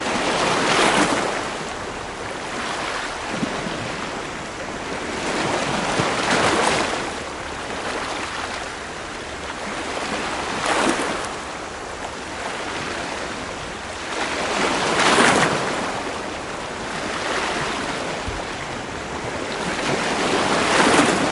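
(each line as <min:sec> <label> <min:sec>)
0:00.0 Ocean waves hitting the shore. 0:21.3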